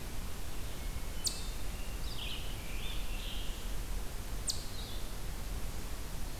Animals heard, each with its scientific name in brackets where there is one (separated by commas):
Hermit Thrush (Catharus guttatus), Eastern Chipmunk (Tamias striatus), Scarlet Tanager (Piranga olivacea)